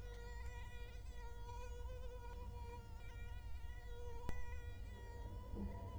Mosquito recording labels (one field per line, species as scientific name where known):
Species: Culex quinquefasciatus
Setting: cup